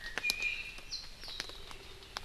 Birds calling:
Warbling White-eye (Zosterops japonicus), Iiwi (Drepanis coccinea)

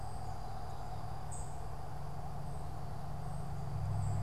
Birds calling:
unidentified bird

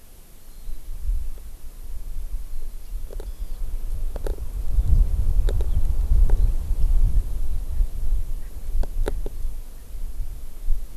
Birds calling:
Hawaii Amakihi (Chlorodrepanis virens)

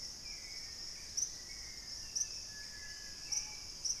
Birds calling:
Black-faced Antthrush (Formicarius analis), Hauxwell's Thrush (Turdus hauxwelli), Screaming Piha (Lipaugus vociferans)

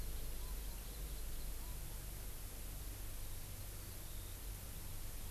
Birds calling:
Hawaii Amakihi (Chlorodrepanis virens)

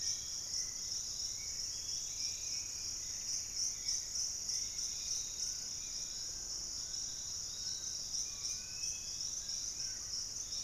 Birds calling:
Hauxwell's Thrush (Turdus hauxwelli), Fasciated Antshrike (Cymbilaimus lineatus), Dusky-capped Flycatcher (Myiarchus tuberculifer), Pygmy Antwren (Myrmotherula brachyura), unidentified bird, Piratic Flycatcher (Legatus leucophaius)

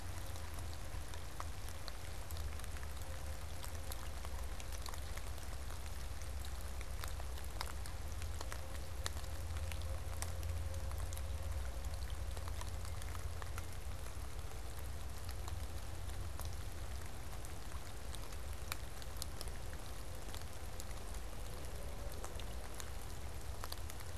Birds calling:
Pileated Woodpecker (Dryocopus pileatus)

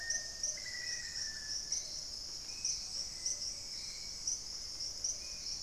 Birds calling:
Spot-winged Antshrike (Pygiptila stellaris), Thrush-like Wren (Campylorhynchus turdinus), Hauxwell's Thrush (Turdus hauxwelli), Black-faced Antthrush (Formicarius analis), Plumbeous Pigeon (Patagioenas plumbea)

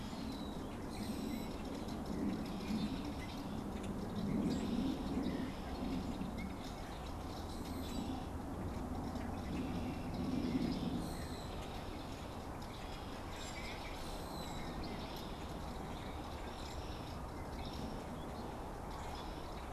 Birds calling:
Red-winged Blackbird (Agelaius phoeniceus), Common Grackle (Quiscalus quiscula)

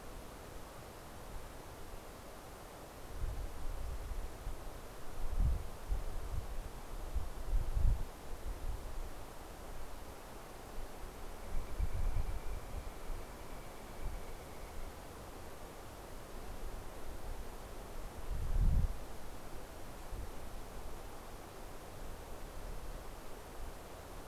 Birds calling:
Northern Flicker (Colaptes auratus)

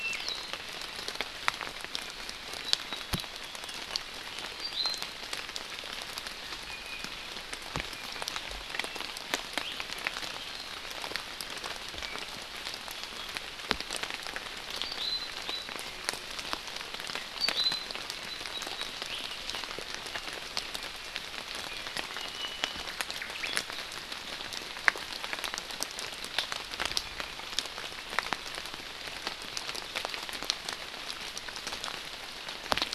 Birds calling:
Omao (Myadestes obscurus), Iiwi (Drepanis coccinea)

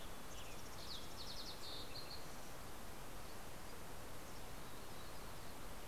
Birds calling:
Mountain Chickadee (Poecile gambeli), Western Tanager (Piranga ludoviciana), Yellow-rumped Warbler (Setophaga coronata), Fox Sparrow (Passerella iliaca)

